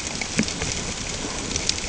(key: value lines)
label: ambient
recorder: HydroMoth